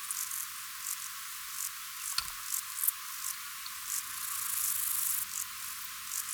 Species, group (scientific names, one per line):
Lluciapomaresius stalii
Orthoptera